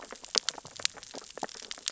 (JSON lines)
{"label": "biophony, sea urchins (Echinidae)", "recorder": "SoundTrap 600 or HydroMoth"}